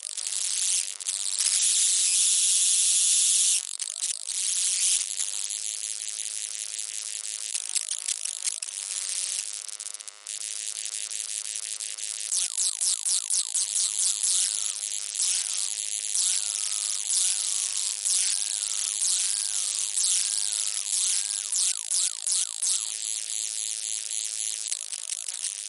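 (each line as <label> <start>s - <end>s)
Radio interference from a broken device. 0.2s - 25.7s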